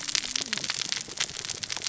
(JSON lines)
{"label": "biophony, cascading saw", "recorder": "SoundTrap 600 or HydroMoth"}